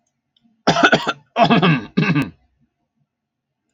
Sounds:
Throat clearing